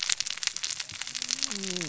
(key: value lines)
label: biophony, cascading saw
recorder: SoundTrap 600 or HydroMoth